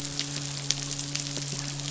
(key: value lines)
label: biophony, midshipman
recorder: SoundTrap 500